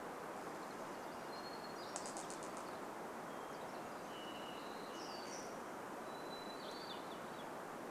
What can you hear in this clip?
Varied Thrush song, Hermit Thrush song, warbler song